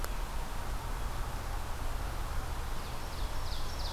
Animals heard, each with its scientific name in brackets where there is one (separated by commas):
Ovenbird (Seiurus aurocapilla)